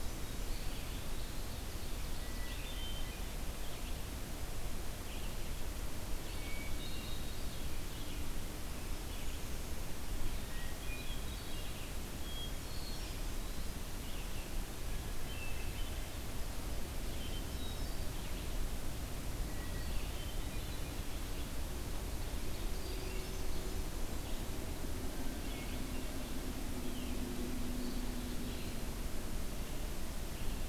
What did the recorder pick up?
Hermit Thrush, Red-eyed Vireo, Eastern Wood-Pewee